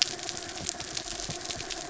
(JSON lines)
{"label": "anthrophony, mechanical", "recorder": "SoundTrap 300"}